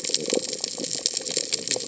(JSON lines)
{"label": "biophony", "recorder": "HydroMoth"}